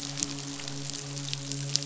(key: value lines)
label: biophony, midshipman
recorder: SoundTrap 500